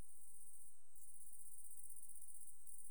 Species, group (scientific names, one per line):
Tettigonia viridissima
Orthoptera